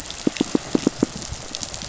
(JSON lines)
{"label": "biophony, pulse", "recorder": "SoundTrap 500"}